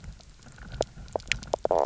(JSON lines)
{"label": "biophony, knock croak", "recorder": "SoundTrap 300"}